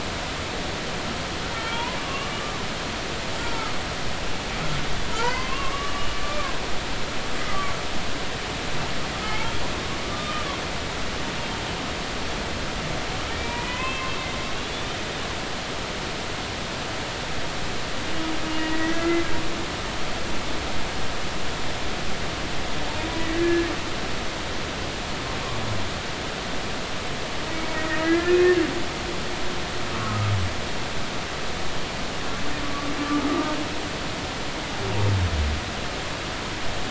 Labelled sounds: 1.5	2.3	humpback whale, 1.0 to 3.4 kHz
5.1	6.1	humpback whale, 0.86 to 2.8 kHz
7.5	7.7	humpback whale, 1.1 to 1.3 kHz
9.2	10.6	humpback whale, 0.96 to 2.3 kHz
13.4	14.1	humpback whale, 0.96 to 2.7 kHz
18.5	19.2	humpback whale, 1.3 to 2.9 kHz
23.2	23.7	humpback whale, 1.6 to 2.0 kHz
27.7	28.6	humpback whale, 1.3 to 2.6 kHz
29.9	30.3	humpback whale, 1.0 to 1.5 kHz
32.6	32.9	humpback whale, 1.1 to 1.2 kHz
33.3	33.6	humpback whale, 1.1 to 1.2 kHz

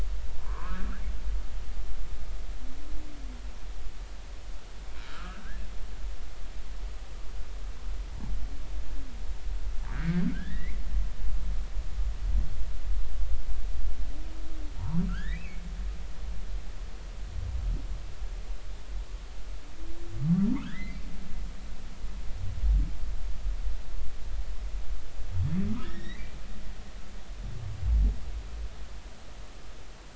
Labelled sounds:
0.4	0.9	humpback whale, 0.90 to 1.8 kHz
5.1	5.6	humpback whale, 1.1 to 1.8 kHz
9.9	10.8	humpback whale, 1.3 to 4.0 kHz
14.8	15.6	humpback whale, 0.86 to 4.0 kHz
20.5	21.0	humpback whale, 0.86 to 2.2 kHz
25.7	26.3	humpback whale, 0.93 to 5.9 kHz

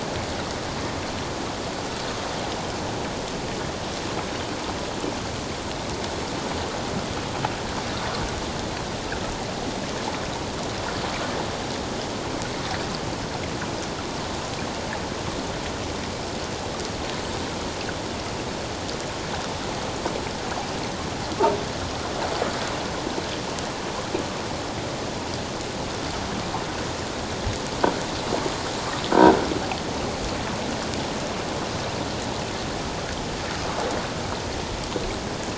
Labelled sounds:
29.1	29.4	croaking sound likely from a nearby submerged object, 1.4 to 1.6 kHz

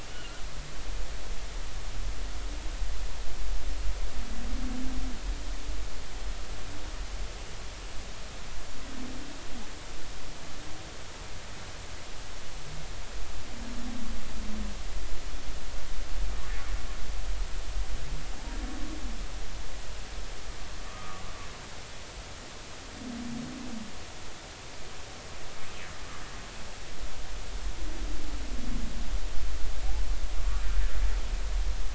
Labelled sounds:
0.1	0.4	humpback whale, 1.3 to 3.0 kHz
20.9	21.2	humpback whale, 1.1 to 1.3 kHz

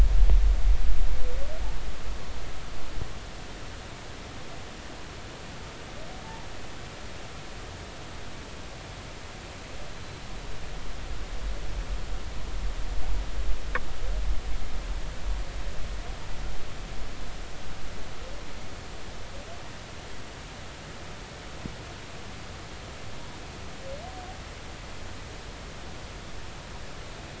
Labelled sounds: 9.9	10.2	humpback whale, 4.0 to 4.1 kHz

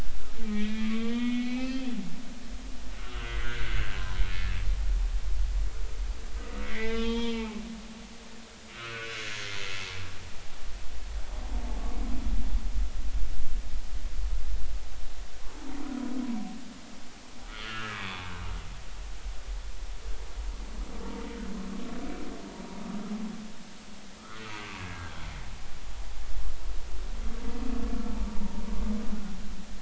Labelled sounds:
0.4	1.9	humpback whale, 0.90 to 3.5 kHz
2.9	4.2	humpback whale, 0.90 to 2.1 kHz
6.6	7.6	humpback whale, 0.86 to 5.1 kHz
7.9	9.1	humpback whale, 1.2 to 3.6 kHz
17.5	18.1	humpback whale, 0.99 to 1.8 kHz
18.9	19.2	humpback whale, 3.4 to 3.6 kHz
24.2	24.5	humpback whale, 1.1 to 1.5 kHz
24.8	25.1	humpback whale, 1.5 to 1.7 kHz
28.4	28.6	humpback whale, 0.86 to 0.99 kHz

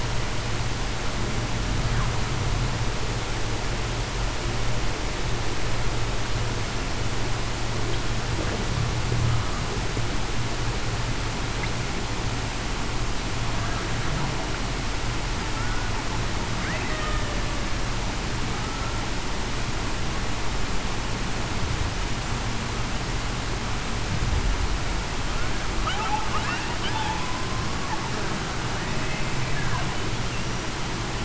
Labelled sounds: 15.6	15.9	killer whale, Bigg's (transient), 1.3 to 1.5 kHz
16.8	17.3	killer whale, Bigg's (transient), 1.8 to 2.0 kHz

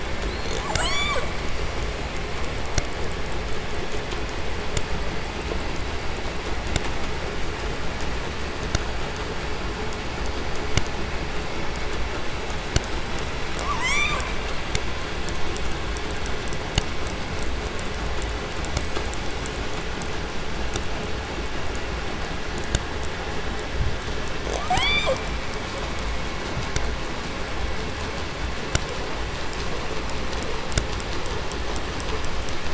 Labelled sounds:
0.2	1.5	killer whale, southern resident, J pod, call S44, 0.18 to 8.0 kHz
13.5	14.4	killer whale, southern resident, J pod, call S44, 0.27 to 8.0 kHz
24.5	25.4	killer whale, southern resident, J pod, call S44, 0.15 to 8.0 kHz

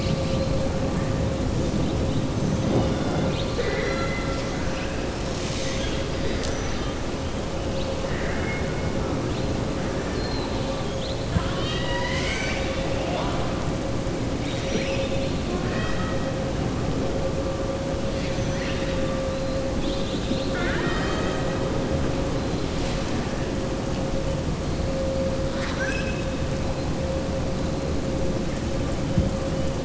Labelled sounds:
2.9	4.5	killer whale, southern resident, 0.42 to 5.9 kHz
8.0	8.7	killer whale, southern resident, 0.70 to 2.9 kHz
10.0	10.7	killer whale, southern resident, 3.1 to 4.5 kHz
11.2	13.5	killer whale, southern resident, 0.65 to 7.7 kHz
14.3	15.3	killer whale, southern resident, 2.1 to 5.9 kHz
19.7	21.6	killer whale, southern resident, 0.58 to 6.4 kHz
25.4	26.3	killer whale, southern resident, 1.1 to 7.7 kHz

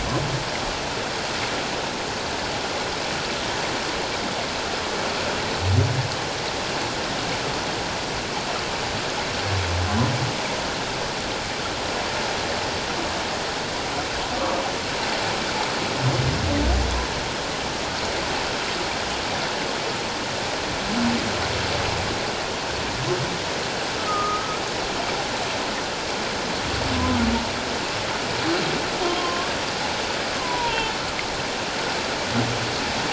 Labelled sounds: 24.0	24.6	humpback whale, 1.2 to 1.4 kHz
29.0	29.5	humpback whale, 0.94 to 1.2 kHz
30.3	31.0	humpback whale, 0.84 to 3.3 kHz

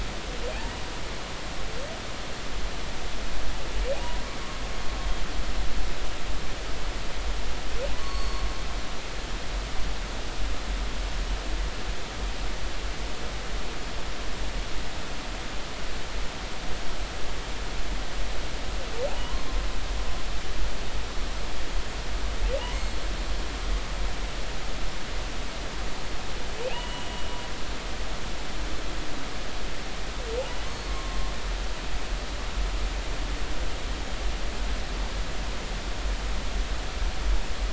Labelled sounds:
7.9	8.4	humpback whale, 0.96 to 4.5 kHz
22.7	23.0	humpback whale, 4.2 to 4.4 kHz
26.6	27.1	humpback whale, 2.4 to 3.0 kHz
30.9	31.2	humpback whale, 1.0 to 1.1 kHz

